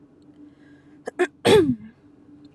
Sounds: Throat clearing